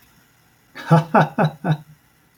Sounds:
Laughter